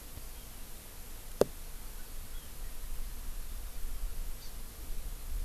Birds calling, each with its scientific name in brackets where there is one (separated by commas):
Hawaii Amakihi (Chlorodrepanis virens)